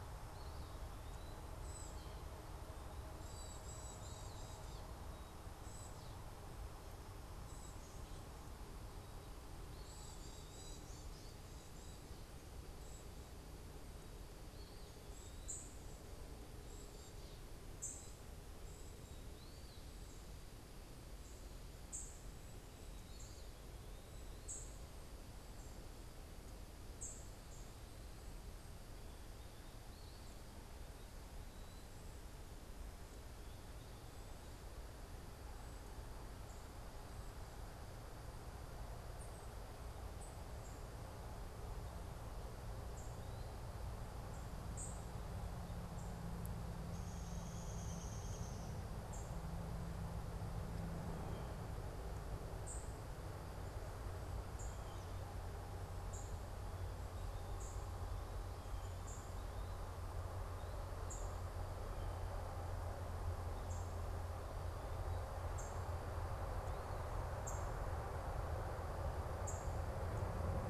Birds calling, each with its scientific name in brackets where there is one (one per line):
unidentified bird
Downy Woodpecker (Dryobates pubescens)
Black-capped Chickadee (Poecile atricapillus)